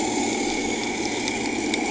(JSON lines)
{"label": "anthrophony, boat engine", "recorder": "HydroMoth"}